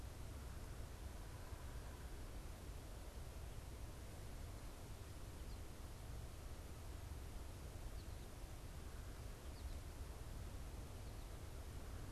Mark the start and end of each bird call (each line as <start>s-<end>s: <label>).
5.2s-5.7s: American Goldfinch (Spinus tristis)
7.6s-9.9s: American Goldfinch (Spinus tristis)